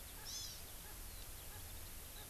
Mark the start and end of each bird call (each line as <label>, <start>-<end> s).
Eurasian Skylark (Alauda arvensis), 0.0-2.3 s
Erckel's Francolin (Pternistis erckelii), 0.2-0.3 s
Hawaii Amakihi (Chlorodrepanis virens), 0.3-0.6 s
Erckel's Francolin (Pternistis erckelii), 0.8-1.0 s
Erckel's Francolin (Pternistis erckelii), 1.5-1.6 s
Erckel's Francolin (Pternistis erckelii), 2.1-2.3 s